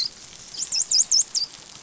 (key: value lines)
label: biophony, dolphin
recorder: SoundTrap 500